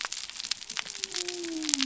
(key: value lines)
label: biophony
recorder: SoundTrap 300